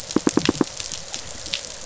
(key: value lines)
label: biophony, pulse
recorder: SoundTrap 500